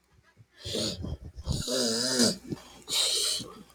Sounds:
Sniff